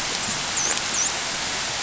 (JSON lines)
{"label": "biophony, dolphin", "recorder": "SoundTrap 500"}